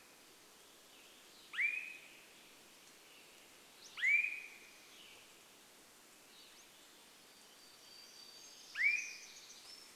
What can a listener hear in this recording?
Swainson's Thrush call, unidentified sound, Western Tanager song, Pacific-slope Flycatcher call, warbler song